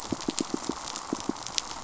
{"label": "biophony, pulse", "recorder": "SoundTrap 500"}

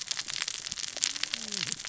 {"label": "biophony, cascading saw", "recorder": "SoundTrap 600 or HydroMoth"}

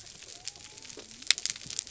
{"label": "biophony", "recorder": "SoundTrap 300"}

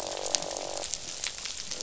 {"label": "biophony, croak", "recorder": "SoundTrap 500"}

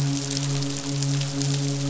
{"label": "biophony, midshipman", "recorder": "SoundTrap 500"}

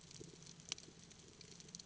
{"label": "ambient", "recorder": "HydroMoth"}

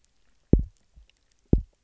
{"label": "biophony, double pulse", "recorder": "SoundTrap 300"}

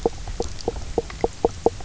{"label": "biophony, knock croak", "recorder": "SoundTrap 300"}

